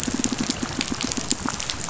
{"label": "biophony, pulse", "recorder": "SoundTrap 500"}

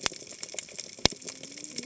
{"label": "biophony, cascading saw", "recorder": "HydroMoth"}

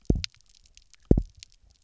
{"label": "biophony, double pulse", "recorder": "SoundTrap 300"}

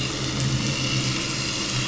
{"label": "anthrophony, boat engine", "recorder": "SoundTrap 500"}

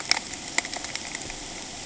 {"label": "ambient", "recorder": "HydroMoth"}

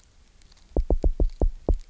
{"label": "biophony, knock", "recorder": "SoundTrap 300"}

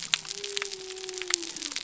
{"label": "biophony", "recorder": "SoundTrap 300"}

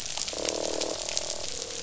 {"label": "biophony, croak", "recorder": "SoundTrap 500"}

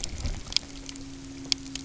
{"label": "anthrophony, boat engine", "recorder": "SoundTrap 300"}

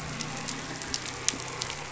{"label": "anthrophony, boat engine", "recorder": "SoundTrap 500"}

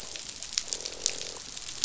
{"label": "biophony, croak", "recorder": "SoundTrap 500"}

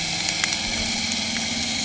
{"label": "anthrophony, boat engine", "recorder": "HydroMoth"}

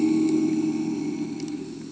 {"label": "anthrophony, boat engine", "recorder": "HydroMoth"}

